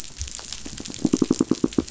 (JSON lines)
{"label": "biophony, knock", "recorder": "SoundTrap 500"}